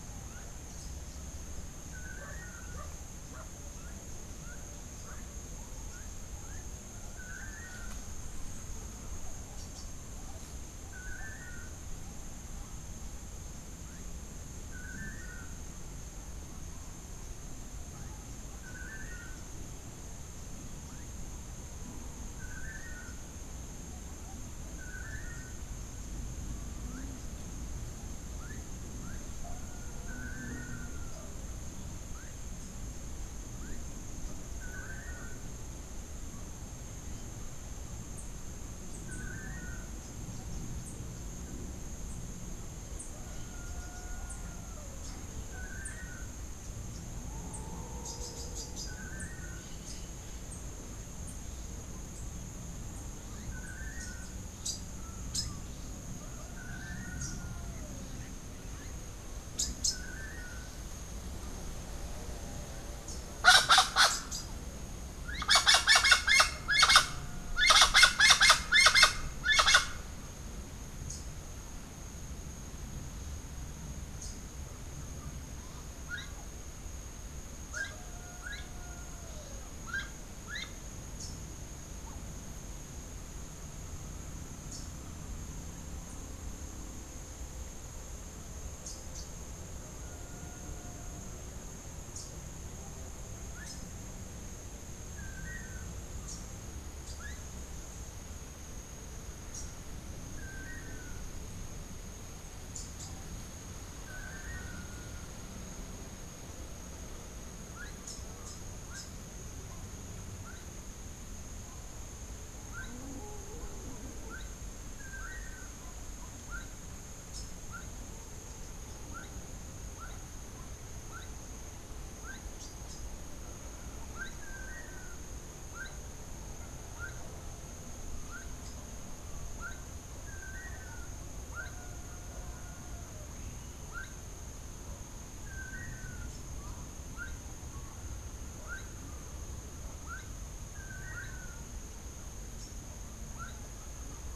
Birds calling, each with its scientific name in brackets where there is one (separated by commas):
Gray-headed Chachalaca (Ortalis cinereiceps), Rufous-capped Warbler (Basileuterus rufifrons), Long-tailed Manakin (Chiroxiphia linearis), Melodious Blackbird (Dives dives)